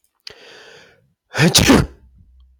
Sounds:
Sneeze